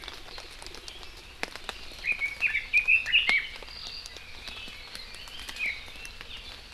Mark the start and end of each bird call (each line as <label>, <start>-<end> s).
Red-billed Leiothrix (Leiothrix lutea), 2.0-6.2 s